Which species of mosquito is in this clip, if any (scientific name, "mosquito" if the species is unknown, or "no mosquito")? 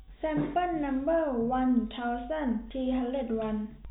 no mosquito